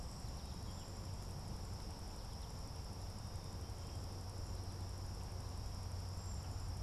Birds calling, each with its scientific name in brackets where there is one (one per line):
Cedar Waxwing (Bombycilla cedrorum)